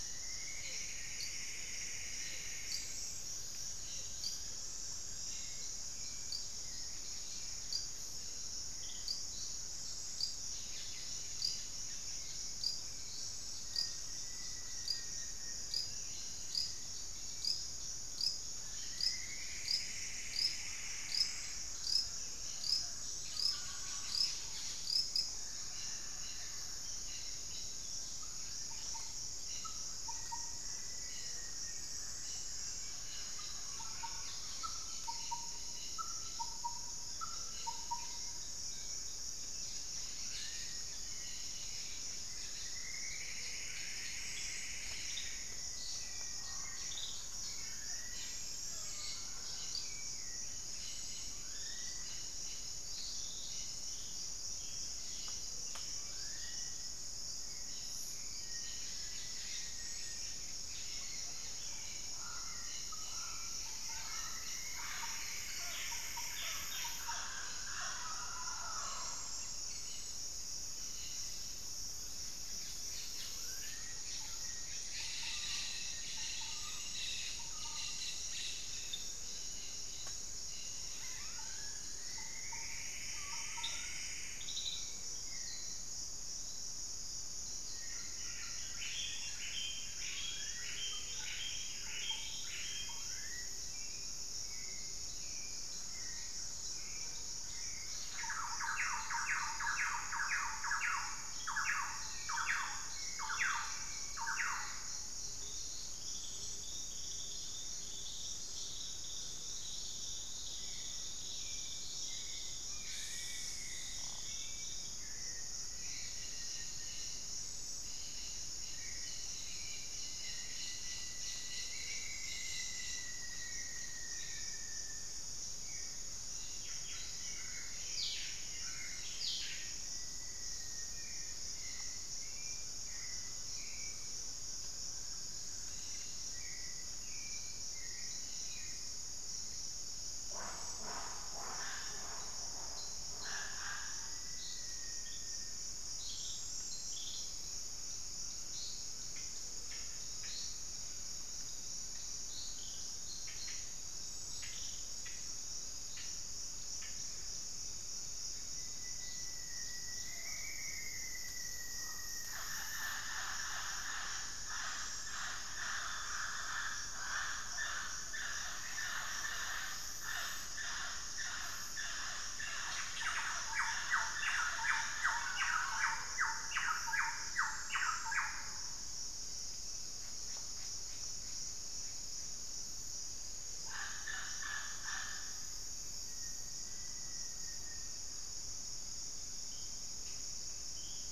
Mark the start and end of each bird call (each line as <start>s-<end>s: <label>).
0.0s-3.2s: Plumbeous Antbird (Myrmelastes hyperythrus)
0.0s-17.7s: Hauxwell's Thrush (Turdus hauxwelli)
0.0s-35.7s: Mealy Parrot (Amazona farinosa)
0.0s-81.2s: Cobalt-winged Parakeet (Brotogeris cyanoptera)
0.7s-3.1s: Black-faced Antthrush (Formicarius analis)
2.8s-5.7s: Wing-barred Piprites (Piprites chloris)
12.2s-16.6s: Wing-barred Piprites (Piprites chloris)
13.4s-15.9s: Black-faced Antthrush (Formicarius analis)
18.4s-21.9s: Plumbeous Antbird (Myrmelastes hyperythrus)
28.0s-38.9s: Thrush-like Wren (Campylorhynchus turdinus)
29.8s-32.3s: Black-faced Antthrush (Formicarius analis)
40.0s-52.7s: Black-faced Cotinga (Conioptilon mcilhennyi)
42.3s-45.8s: Plumbeous Antbird (Myrmelastes hyperythrus)
44.5s-47.0s: Black-faced Antthrush (Formicarius analis)
45.7s-50.2s: Mealy Parrot (Amazona farinosa)
47.5s-49.4s: Wing-barred Piprites (Piprites chloris)
54.9s-86.1s: Hauxwell's Thrush (Turdus hauxwelli)
55.8s-57.2s: Black-faced Cotinga (Conioptilon mcilhennyi)
58.0s-60.5s: Black-faced Antthrush (Formicarius analis)
60.8s-61.5s: unidentified bird
61.9s-69.8s: Mealy Parrot (Amazona farinosa)
62.0s-69.0s: Thrush-like Wren (Campylorhynchus turdinus)
63.8s-67.4s: Plumbeous Antbird (Myrmelastes hyperythrus)
73.1s-84.5s: Black-faced Cotinga (Conioptilon mcilhennyi)
73.7s-85.1s: Thrush-like Wren (Campylorhynchus turdinus)
74.2s-76.8s: Black-faced Antthrush (Formicarius analis)
77.9s-80.1s: Wing-barred Piprites (Piprites chloris)
81.8s-84.6s: Plumbeous Antbird (Myrmelastes hyperythrus)
87.4s-89.8s: Black-faced Antthrush (Formicarius analis)
87.7s-93.2s: Buff-breasted Wren (Cantorchilus leucotis)
89.8s-93.7s: Black-faced Cotinga (Conioptilon mcilhennyi)
92.4s-97.5s: Gilded Barbet (Capito auratus)
93.5s-104.5s: Hauxwell's Thrush (Turdus hauxwelli)
97.9s-105.1s: Thrush-like Wren (Campylorhynchus turdinus)
100.8s-103.2s: Black-faced Antthrush (Formicarius analis)
105.2s-110.2s: Gilded Barbet (Capito auratus)
110.4s-139.6s: Hauxwell's Thrush (Turdus hauxwelli)
112.7s-114.0s: Black-faced Cotinga (Conioptilon mcilhennyi)
114.8s-117.3s: Black-faced Antthrush (Formicarius analis)
120.0s-125.5s: Rufous-fronted Antthrush (Formicarius rufifrons)
126.5s-130.0s: Buff-breasted Wren (Cantorchilus leucotis)
129.0s-131.5s: Black-faced Antthrush (Formicarius analis)
132.6s-135.8s: Wing-barred Piprites (Piprites chloris)
135.8s-136.3s: unidentified bird
140.1s-144.3s: Spix's Guan (Penelope jacquacu)
143.3s-145.8s: Black-faced Antthrush (Formicarius analis)
148.7s-157.6s: unidentified bird
158.4s-163.9s: Rufous-fronted Antthrush (Formicarius rufifrons)
159.3s-161.7s: Black-faced Antthrush (Formicarius analis)
160.0s-176.2s: Mealy Parrot (Amazona farinosa)
172.8s-178.9s: Thrush-like Wren (Campylorhynchus turdinus)
179.8s-182.3s: unidentified bird
183.6s-185.4s: Mealy Parrot (Amazona farinosa)
185.3s-186.2s: White-rumped Sirystes (Sirystes albocinereus)
185.7s-188.2s: Black-faced Antthrush (Formicarius analis)